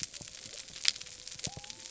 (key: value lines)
label: biophony
recorder: SoundTrap 300